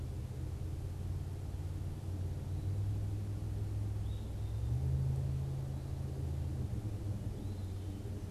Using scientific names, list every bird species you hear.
Contopus virens